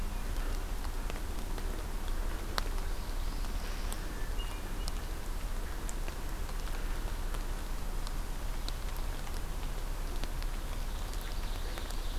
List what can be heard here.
Northern Parula, Hermit Thrush, Ovenbird